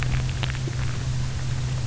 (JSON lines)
{"label": "anthrophony, boat engine", "recorder": "SoundTrap 300"}